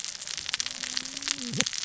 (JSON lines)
{"label": "biophony, cascading saw", "recorder": "SoundTrap 600 or HydroMoth"}